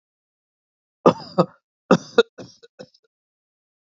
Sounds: Cough